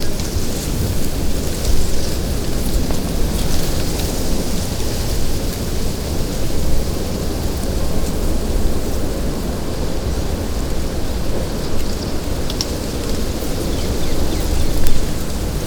How does the ground likely feel?
wet